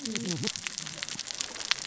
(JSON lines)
{"label": "biophony, cascading saw", "recorder": "SoundTrap 600 or HydroMoth"}